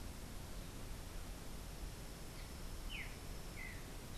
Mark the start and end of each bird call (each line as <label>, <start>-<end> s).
Streaked Saltator (Saltator striatipectus), 2.7-4.2 s